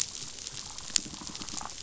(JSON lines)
{"label": "biophony", "recorder": "SoundTrap 500"}